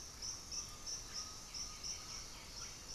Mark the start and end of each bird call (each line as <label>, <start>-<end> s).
Russet-backed Oropendola (Psarocolius angustifrons), 0.0-2.9 s
Undulated Tinamou (Crypturellus undulatus), 0.3-2.5 s
White-winged Becard (Pachyramphus polychopterus), 0.8-2.9 s
Black-throated Antbird (Myrmophylax atrothorax), 0.9-2.9 s